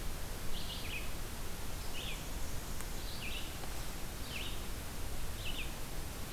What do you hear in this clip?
Red-eyed Vireo, Black-and-white Warbler